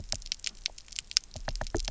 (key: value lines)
label: biophony, knock
recorder: SoundTrap 300